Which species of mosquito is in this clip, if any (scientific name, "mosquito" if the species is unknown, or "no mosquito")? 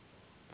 Anopheles gambiae s.s.